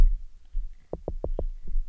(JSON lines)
{"label": "biophony, knock", "recorder": "SoundTrap 300"}